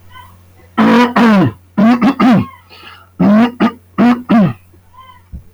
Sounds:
Throat clearing